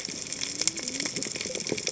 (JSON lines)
{"label": "biophony, cascading saw", "recorder": "HydroMoth"}